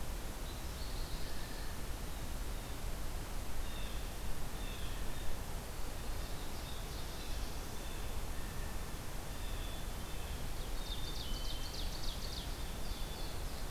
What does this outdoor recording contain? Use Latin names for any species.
Spinus tristis, Cyanocitta cristata, Setophaga americana, Poecile atricapillus, Seiurus aurocapilla